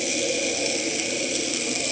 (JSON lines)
{"label": "anthrophony, boat engine", "recorder": "HydroMoth"}